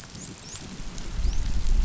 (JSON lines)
{"label": "biophony, dolphin", "recorder": "SoundTrap 500"}